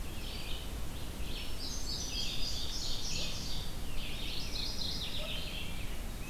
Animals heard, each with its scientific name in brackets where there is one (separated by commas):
Indigo Bunting (Passerina cyanea), Red-eyed Vireo (Vireo olivaceus), Mourning Warbler (Geothlypis philadelphia)